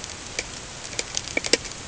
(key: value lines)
label: ambient
recorder: HydroMoth